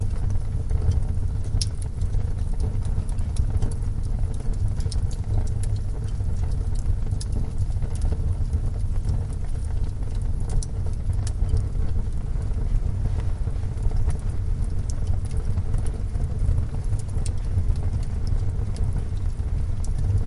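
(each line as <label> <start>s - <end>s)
Wood crackling in a fireplace. 0.0s - 20.3s
Gas flowing in a hot fire. 0.1s - 20.3s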